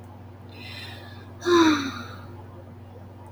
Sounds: Sigh